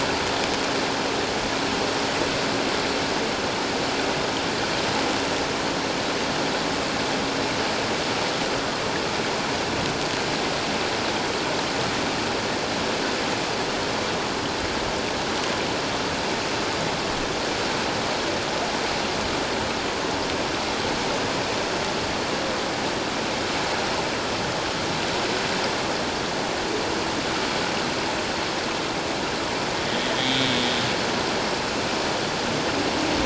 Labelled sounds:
30.2	30.5	humpback whale, 3.2 to 3.8 kHz

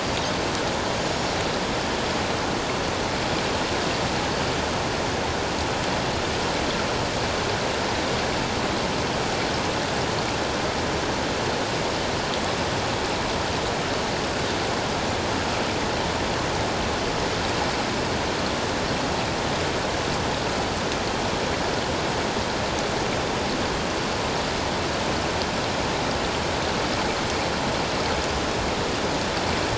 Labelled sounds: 1.0	1.4	Pacific white-sided dolphin, 5.3 to 7.0 kHz

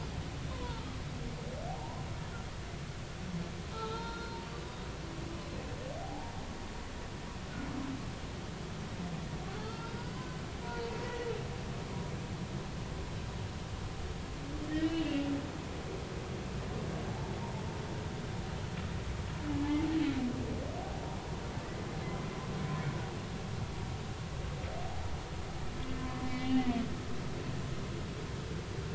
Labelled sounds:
0.6	0.9	humpback whale, 0.86 to 1.5 kHz
1.8	2.0	humpback whale, 0.80 to 1.1 kHz
3.7	4.4	humpback whale, 0.83 to 4.2 kHz
6.0	6.3	humpback whale, 0.80 to 0.99 kHz
9.6	10.2	humpback whale, 1.2 to 5.2 kHz
15.0	15.3	humpback whale, 2.6 to 2.9 kHz
26.2	26.7	humpback whale, 2.0 to 3.0 kHz

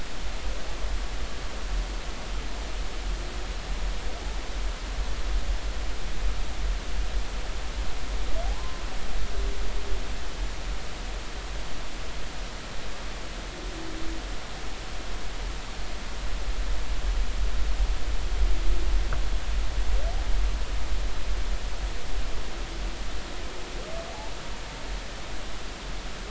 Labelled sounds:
8.4	8.8	humpback whale, 0.80 to 1.1 kHz

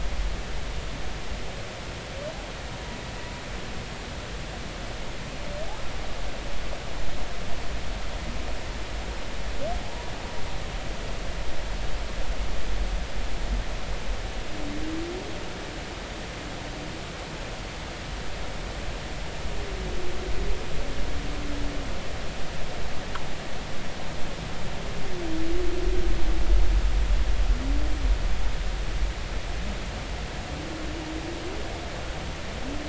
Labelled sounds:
9.8	10.1	humpback whale, 0.80 to 1.0 kHz

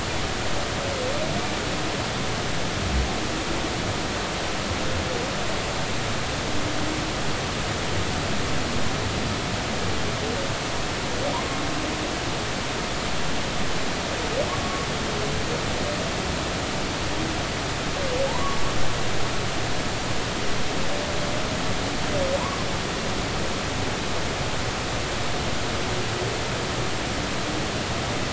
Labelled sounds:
15.6	15.9	humpback whale, 1.1 to 1.2 kHz
18.3	18.6	humpback whale, 0.80 to 1.2 kHz
22.4	22.7	humpback whale, 0.90 to 1.2 kHz

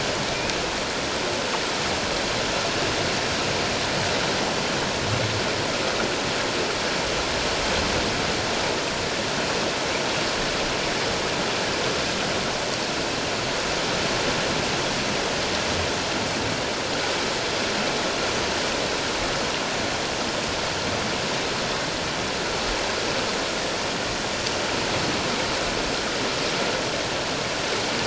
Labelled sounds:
0.3	0.6	humpback whale, 2.3 to 2.6 kHz

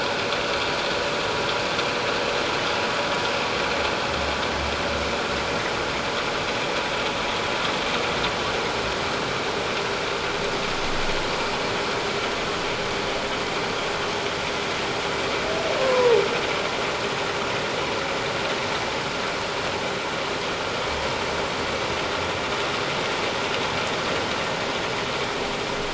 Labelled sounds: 15.8	16.2	humpback whale, 0.81 to 1.1 kHz

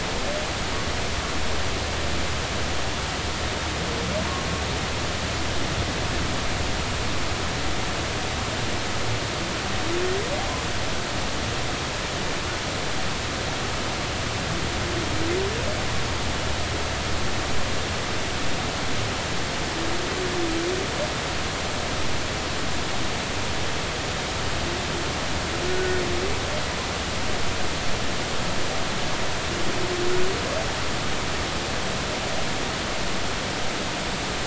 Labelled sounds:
25.7	26.0	humpback whale, 1.4 to 1.5 kHz

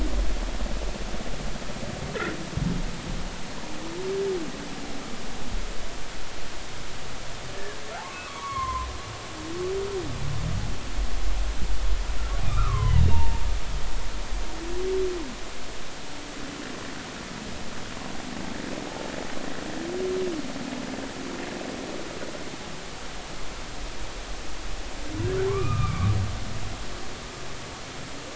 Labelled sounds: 7.9	8.9	humpback whale, 0.80 to 2.3 kHz
12.4	13.4	humpback whale, 0.86 to 2.5 kHz
25.5	26.1	humpback whale, 0.99 to 2.6 kHz

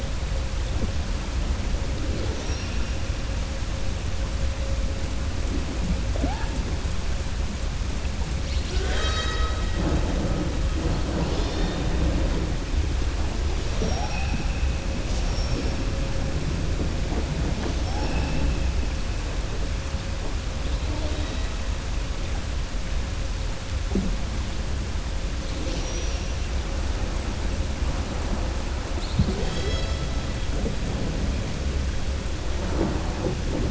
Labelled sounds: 8.4	9.6	killer whale, southern resident, 0.58 to 7.7 kHz

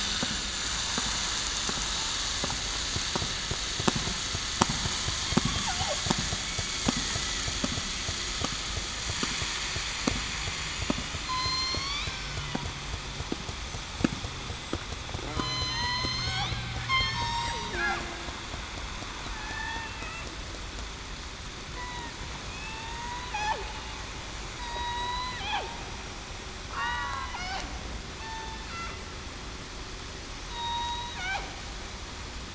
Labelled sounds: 0.1	0.7	vessel noise, 7.0 to 7.4 kHz
6.4	6.9	killer whale, southern resident, 2.1 to 2.3 kHz
11.2	12.4	killer whale, southern resident, 0.98 to 6.0 kHz
15.3	16.5	killer whale, southern resident, 0.89 to 8.0 kHz
16.9	17.2	killer whale, southern resident, 3.1 to 3.3 kHz
17.5	18.0	killer whale, southern resident, 0.33 to 0.52 kHz
19.4	19.9	killer whale, southern resident, 1.7 to 1.9 kHz
21.7	22.1	killer whale, southern resident, 0.91 to 2.0 kHz
22.4	22.9	killer whale, southern resident, 2.4 to 2.8 kHz
24.6	25.4	killer whale, southern resident, 0.94 to 4.9 kHz
26.7	27.3	killer whale, southern resident, 0.87 to 4.0 kHz
28.2	28.6	killer whale, southern resident, 0.87 to 0.91 kHz
30.5	31.1	killer whale, southern resident, 0.91 to 3.9 kHz

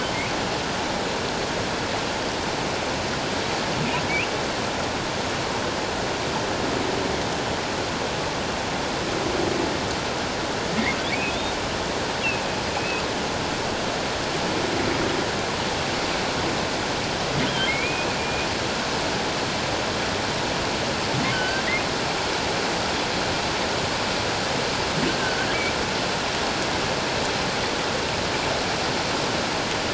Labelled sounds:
11.1	11.6	humpback whale, 2.2 to 3.8 kHz
12.8	13.0	humpback whale, 2.5 to 2.7 kHz
17.4	18.5	humpback whale, 2.0 to 3.4 kHz
21.3	21.6	humpback whale, 1.4 to 1.6 kHz

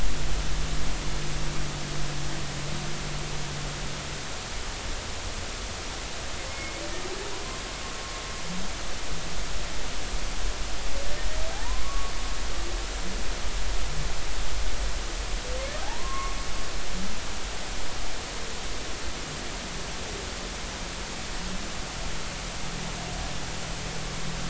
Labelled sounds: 6.5	6.7	humpback whale, 2.1 to 2.2 kHz
11.6	12.1	humpback whale, 0.90 to 1.2 kHz
15.8	16.4	humpback whale, 0.80 to 1.2 kHz

